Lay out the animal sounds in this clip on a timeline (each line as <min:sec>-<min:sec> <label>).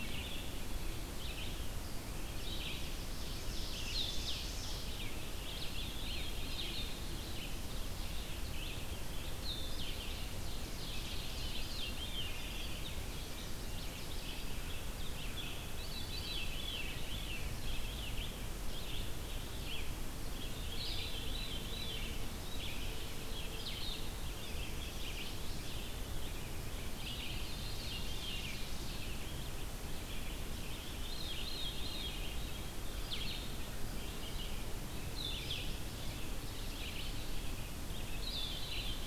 0:00.0-0:24.1 Blue-headed Vireo (Vireo solitarius)
0:00.0-0:27.6 Red-eyed Vireo (Vireo olivaceus)
0:02.9-0:05.1 Ovenbird (Seiurus aurocapilla)
0:05.8-0:07.1 Veery (Catharus fuscescens)
0:10.5-0:11.8 Ovenbird (Seiurus aurocapilla)
0:10.7-0:12.8 Veery (Catharus fuscescens)
0:13.2-0:14.0 Hermit Thrush (Catharus guttatus)
0:13.2-0:14.1 Chestnut-sided Warbler (Setophaga pensylvanica)
0:15.7-0:17.6 Veery (Catharus fuscescens)
0:20.7-0:22.3 Veery (Catharus fuscescens)
0:24.6-0:25.8 Chestnut-sided Warbler (Setophaga pensylvanica)
0:27.0-0:28.8 Veery (Catharus fuscescens)
0:28.8-0:39.0 Red-eyed Vireo (Vireo olivaceus)
0:30.6-0:32.6 Veery (Catharus fuscescens)
0:33.0-0:38.6 Blue-headed Vireo (Vireo solitarius)